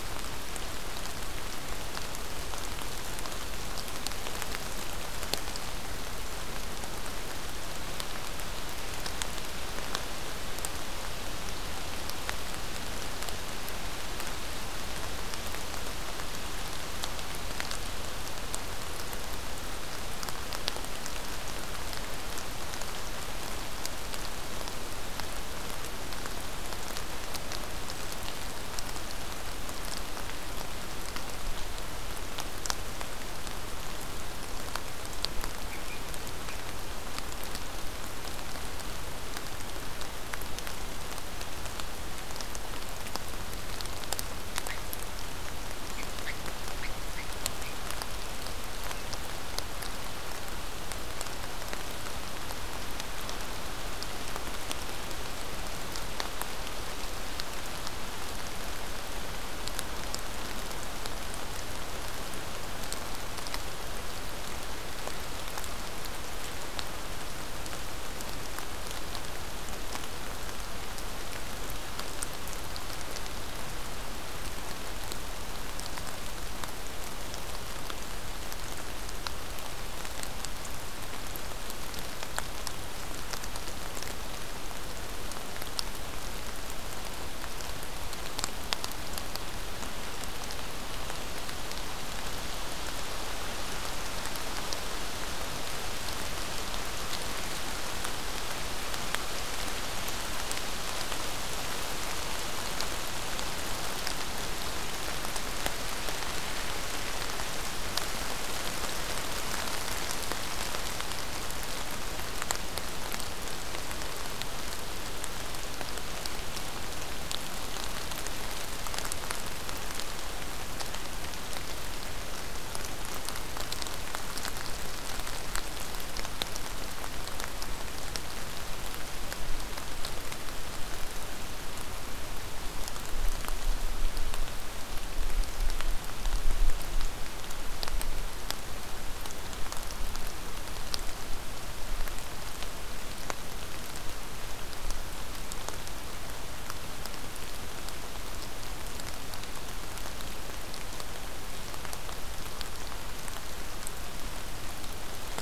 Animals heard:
forest ambience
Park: Acadia National Park